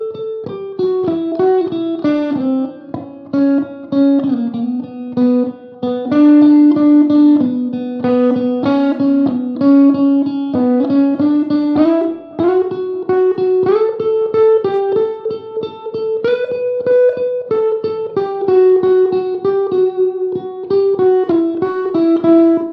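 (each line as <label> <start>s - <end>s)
A solo guitar plays melodically and steadily. 0.1s - 22.7s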